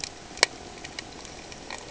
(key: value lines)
label: ambient
recorder: HydroMoth